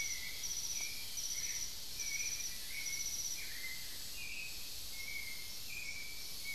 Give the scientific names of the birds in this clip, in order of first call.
Turdus albicollis, Dendrocolaptes certhia